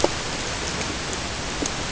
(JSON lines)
{"label": "ambient", "recorder": "HydroMoth"}